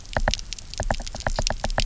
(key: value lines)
label: biophony, knock
recorder: SoundTrap 300